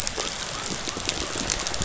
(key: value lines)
label: biophony
recorder: SoundTrap 500